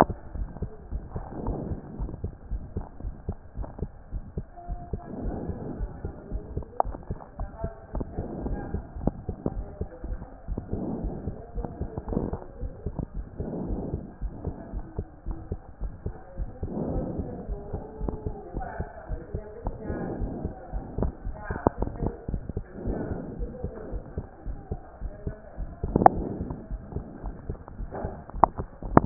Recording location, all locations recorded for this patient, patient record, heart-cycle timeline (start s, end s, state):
aortic valve (AV)
aortic valve (AV)+pulmonary valve (PV)+tricuspid valve (TV)+mitral valve (MV)
#Age: Child
#Sex: Male
#Height: 136.0 cm
#Weight: 31.3 kg
#Pregnancy status: False
#Murmur: Present
#Murmur locations: aortic valve (AV)+pulmonary valve (PV)
#Most audible location: pulmonary valve (PV)
#Systolic murmur timing: Early-systolic
#Systolic murmur shape: Plateau
#Systolic murmur grading: I/VI
#Systolic murmur pitch: Low
#Systolic murmur quality: Harsh
#Diastolic murmur timing: nan
#Diastolic murmur shape: nan
#Diastolic murmur grading: nan
#Diastolic murmur pitch: nan
#Diastolic murmur quality: nan
#Outcome: Normal
#Campaign: 2014 screening campaign
0.00	0.36	unannotated
0.36	0.48	S1
0.48	0.60	systole
0.60	0.70	S2
0.70	0.92	diastole
0.92	1.02	S1
1.02	1.14	systole
1.14	1.24	S2
1.24	1.44	diastole
1.44	1.58	S1
1.58	1.68	systole
1.68	1.78	S2
1.78	1.98	diastole
1.98	2.10	S1
2.10	2.22	systole
2.22	2.32	S2
2.32	2.50	diastole
2.50	2.62	S1
2.62	2.76	systole
2.76	2.84	S2
2.84	3.04	diastole
3.04	3.14	S1
3.14	3.26	systole
3.26	3.36	S2
3.36	3.58	diastole
3.58	3.68	S1
3.68	3.80	systole
3.80	3.90	S2
3.90	4.12	diastole
4.12	4.24	S1
4.24	4.36	systole
4.36	4.46	S2
4.46	4.68	diastole
4.68	4.80	S1
4.80	4.92	systole
4.92	5.00	S2
5.00	5.22	diastole
5.22	5.36	S1
5.36	5.46	systole
5.46	5.56	S2
5.56	5.78	diastole
5.78	5.90	S1
5.90	6.04	systole
6.04	6.12	S2
6.12	6.32	diastole
6.32	6.42	S1
6.42	6.54	systole
6.54	6.64	S2
6.64	6.86	diastole
6.86	6.96	S1
6.96	7.08	systole
7.08	7.18	S2
7.18	7.38	diastole
7.38	7.50	S1
7.50	7.62	systole
7.62	7.72	S2
7.72	7.94	diastole
7.94	8.06	S1
8.06	8.16	systole
8.16	8.26	S2
8.26	8.44	diastole
8.44	8.58	S1
8.58	8.72	systole
8.72	8.84	S2
8.84	9.02	diastole
9.02	29.06	unannotated